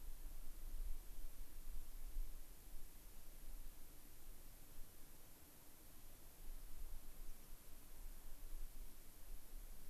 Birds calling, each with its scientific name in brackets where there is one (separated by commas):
American Pipit (Anthus rubescens)